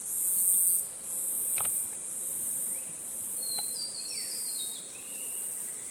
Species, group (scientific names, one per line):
Birrima castanea
Cicadidae